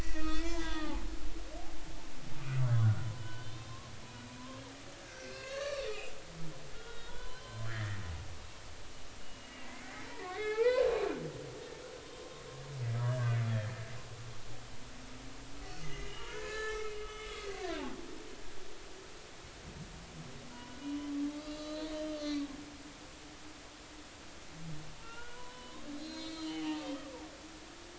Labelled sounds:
0.0	3.8	humpback whale, 1.1 to 5.9 kHz
5.0	6.1	humpback whale, 1.1 to 4.8 kHz
6.7	8.0	humpback whale, 0.90 to 4.2 kHz
9.2	10.9	humpback whale, 0.80 to 4.4 kHz
12.0	12.3	humpback whale, 3.1 to 3.2 kHz
13.0	13.4	humpback whale, 1.5 to 1.8 kHz
15.6	17.8	humpback whale, 0.86 to 4.6 kHz
20.5	22.5	humpback whale, 0.90 to 4.9 kHz
25.0	27.6	humpback whale, 0.80 to 7.5 kHz

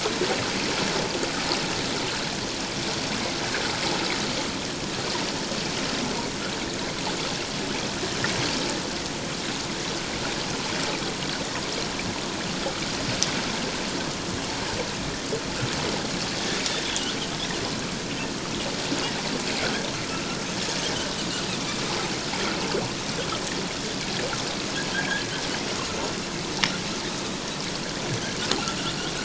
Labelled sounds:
16.9	17.2	Pacific white-sided dolphin, 2.8 to 3.5 kHz

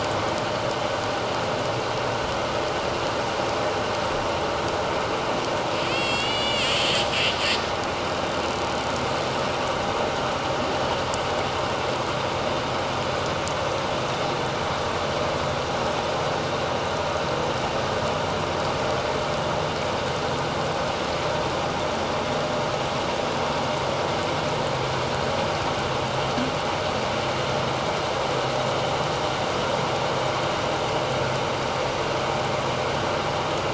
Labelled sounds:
5.9	6.9	killer whale, 2.0 to 7.8 kHz

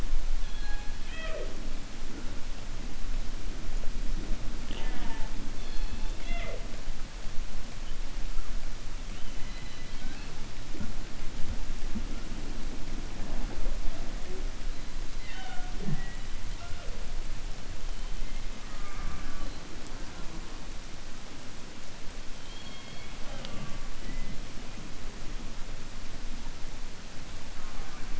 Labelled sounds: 9.1	10.3	killer whale, 0.80 to 4.8 kHz
22.4	23.1	killer whale, 2.2 to 4.4 kHz
27.5	28.1	killer whale, 0.48 to 2.4 kHz

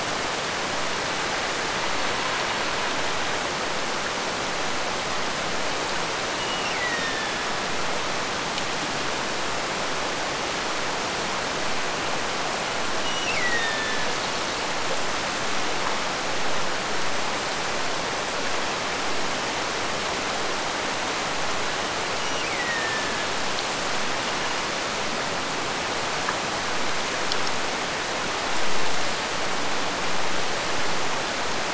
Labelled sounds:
6.4	7.8	killer whale, Bigg's (transient), Gulf of Alaska transient, 1.6 to 4.1 kHz
13.0	14.3	killer whale, Bigg's (transient), Gulf of Alaska transient, 1.6 to 5.9 kHz
22.1	23.4	killer whale, Bigg's (transient), Gulf of Alaska transient, 1.6 to 3.0 kHz

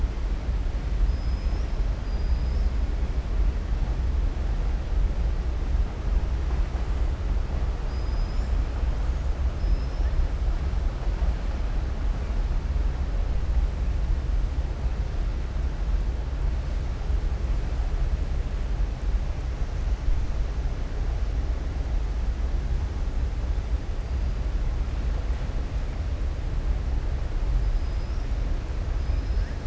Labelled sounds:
1.0	2.7	killer whale, southern resident, 4.8 to 6.5 kHz
9.5	10.1	killer whale, southern resident, 5.1 to 5.7 kHz

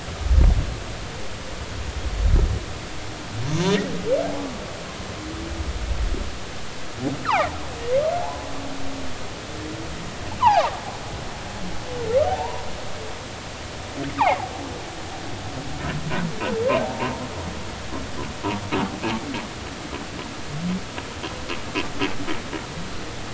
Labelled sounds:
7.2	7.6	humpback whale, 0.80 to 3.0 kHz
10.4	10.7	humpback whale, 0.80 to 3.1 kHz
12.3	12.6	humpback whale, 0.80 to 1.0 kHz
14.2	14.4	humpback whale, 0.80 to 2.7 kHz

